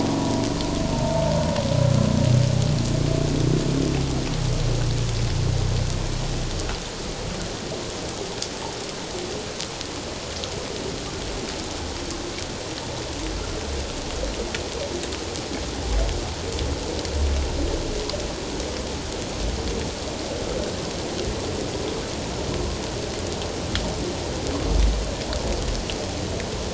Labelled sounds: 0.9	1.2	humpback whale, 0.84 to 0.94 kHz

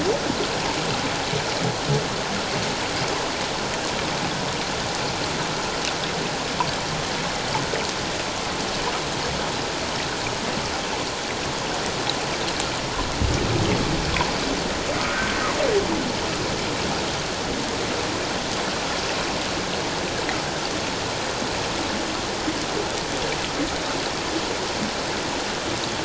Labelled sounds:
15.1	15.4	humpback whale, 1.4 to 1.6 kHz

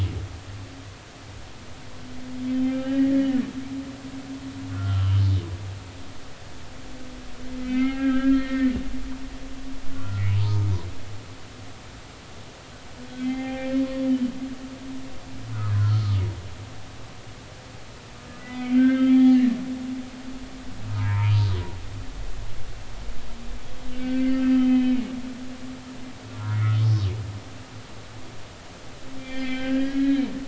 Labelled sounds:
2.5	3.4	humpback whale, 1.5 to 3.2 kHz
4.7	5.2	humpback whale, 0.93 to 3.2 kHz
7.6	8.8	humpback whale, 1.2 to 3.3 kHz
9.9	10.7	humpback whale, 0.86 to 1.5 kHz
13.2	13.7	humpback whale, 0.80 to 3.2 kHz
15.5	16.2	humpback whale, 1.0 to 1.5 kHz
18.4	19.4	humpback whale, 1.2 to 3.7 kHz
21.0	21.3	humpback whale, 0.86 to 2.5 kHz
23.9	25.1	humpback whale, 1.5 to 3.1 kHz
26.3	27.1	humpback whale, 1.2 to 5.3 kHz
29.2	30.2	humpback whale, 1.5 to 4.9 kHz

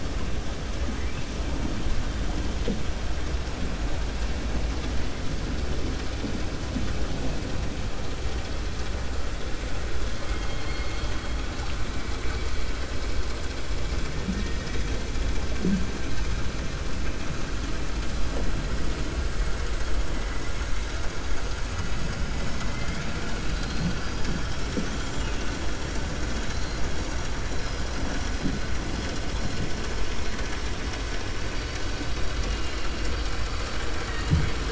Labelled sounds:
10.2	11.4	killer whale, 1.2 to 4.9 kHz
24.4	25.3	killer whale, 4.9 to 8.0 kHz

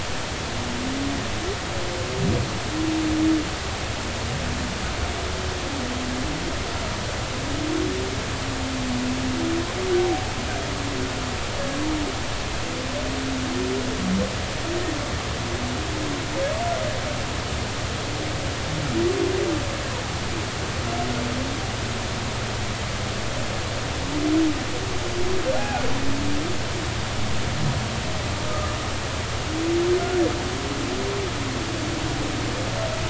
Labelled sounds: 25.6	25.8	humpback whale, 0.80 to 1.7 kHz
28.5	28.8	humpback whale, 1.2 to 1.3 kHz

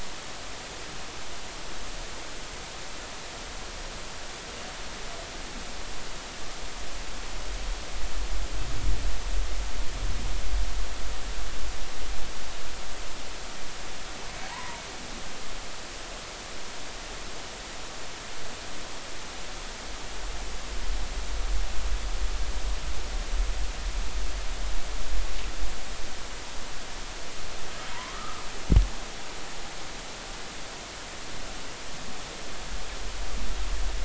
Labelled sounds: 14.4	14.8	humpback whale, 0.80 to 1.1 kHz
28.1	28.4	humpback whale, 1.2 to 1.4 kHz

